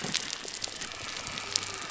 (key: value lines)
label: biophony
recorder: SoundTrap 300